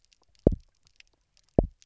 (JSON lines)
{"label": "biophony, double pulse", "recorder": "SoundTrap 300"}